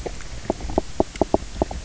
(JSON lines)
{"label": "biophony, knock croak", "recorder": "SoundTrap 300"}